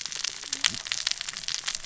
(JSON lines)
{"label": "biophony, cascading saw", "recorder": "SoundTrap 600 or HydroMoth"}